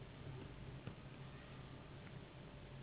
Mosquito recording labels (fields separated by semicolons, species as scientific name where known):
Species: Anopheles gambiae s.s.; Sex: female; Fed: unfed; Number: one; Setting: insect culture